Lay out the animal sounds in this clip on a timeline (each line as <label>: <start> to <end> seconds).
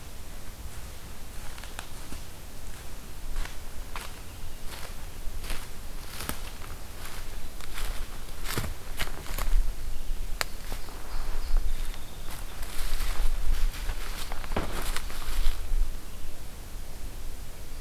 Song Sparrow (Melospiza melodia): 10.1 to 12.6 seconds